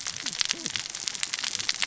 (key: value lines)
label: biophony, cascading saw
recorder: SoundTrap 600 or HydroMoth